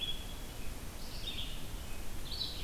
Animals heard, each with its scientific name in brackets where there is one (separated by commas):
Red-eyed Vireo (Vireo olivaceus)